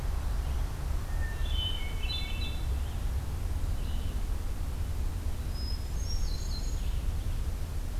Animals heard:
Hermit Thrush (Catharus guttatus)
Red-eyed Vireo (Vireo olivaceus)

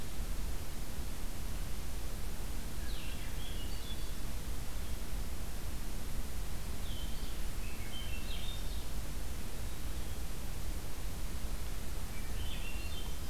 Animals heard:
Swainson's Thrush (Catharus ustulatus)
Black-throated Green Warbler (Setophaga virens)
Blue-headed Vireo (Vireo solitarius)

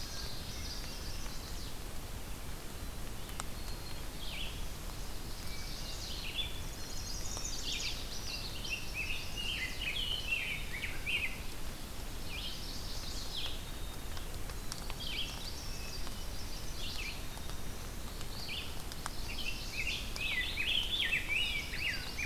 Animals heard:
Chestnut-sided Warbler (Setophaga pensylvanica)
Black-capped Chickadee (Poecile atricapillus)
Rose-breasted Grosbeak (Pheucticus ludovicianus)
Hermit Thrush (Catharus guttatus)
Northern Parula (Setophaga americana)
Red-eyed Vireo (Vireo olivaceus)
Common Yellowthroat (Geothlypis trichas)

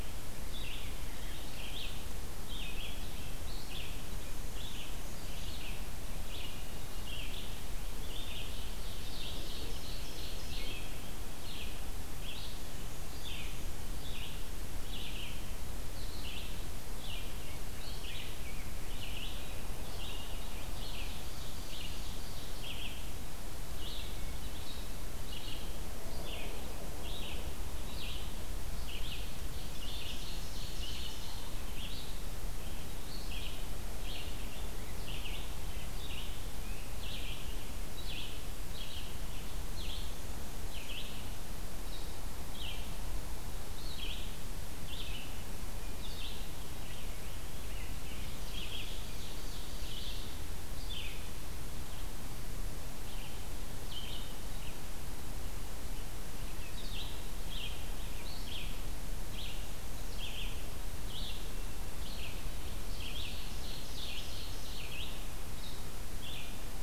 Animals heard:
Black-and-white Warbler (Mniotilta varia)
Rose-breasted Grosbeak (Pheucticus ludovicianus)
Ovenbird (Seiurus aurocapilla)
Red-eyed Vireo (Vireo olivaceus)

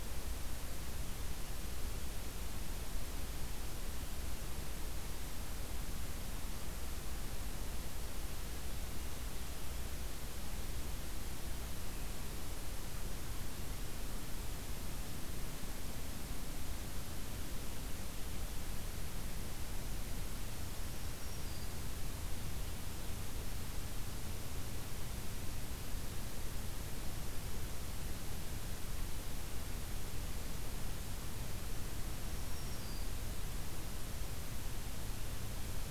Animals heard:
Black-throated Green Warbler (Setophaga virens)

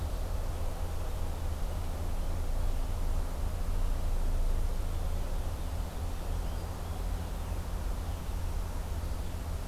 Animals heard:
Purple Finch (Haemorhous purpureus)
Red-eyed Vireo (Vireo olivaceus)

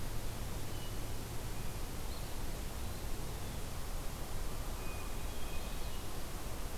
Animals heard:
Hermit Thrush (Catharus guttatus)

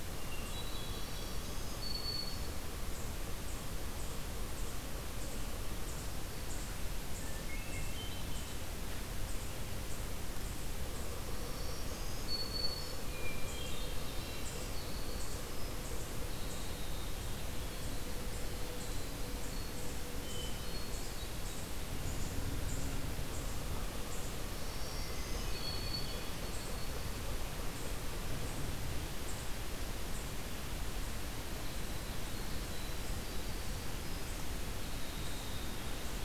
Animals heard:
Black-throated Green Warbler (Setophaga virens)
Winter Wren (Troglodytes hiemalis)
Hermit Thrush (Catharus guttatus)

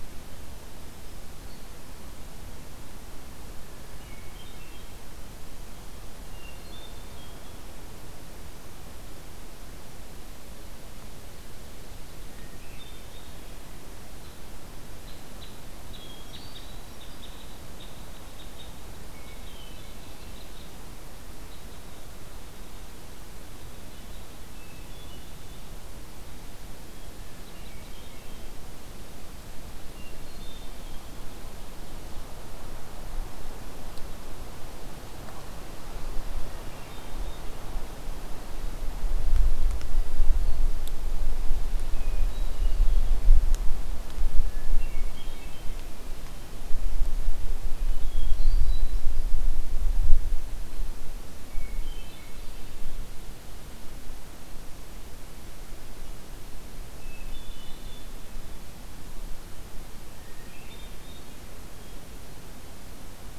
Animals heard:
Red Crossbill (Loxia curvirostra)
Ovenbird (Seiurus aurocapilla)
Hermit Thrush (Catharus guttatus)

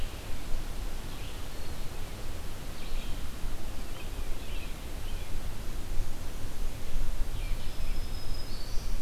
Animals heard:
Black-throated Green Warbler (Setophaga virens)

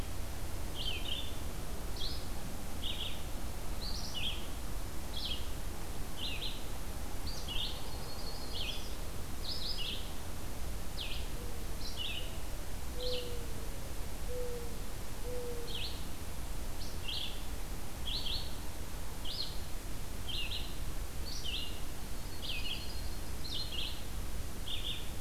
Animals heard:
Red-eyed Vireo (Vireo olivaceus)
Mourning Dove (Zenaida macroura)
Yellow-rumped Warbler (Setophaga coronata)

